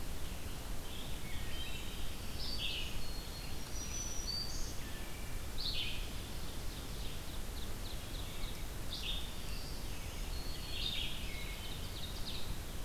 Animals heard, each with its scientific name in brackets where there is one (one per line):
Black-throated Green Warbler (Setophaga virens)
Ovenbird (Seiurus aurocapilla)
Wood Thrush (Hylocichla mustelina)
Red-eyed Vireo (Vireo olivaceus)